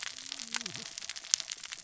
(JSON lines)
{"label": "biophony, cascading saw", "recorder": "SoundTrap 600 or HydroMoth"}